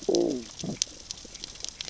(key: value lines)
label: biophony, growl
recorder: SoundTrap 600 or HydroMoth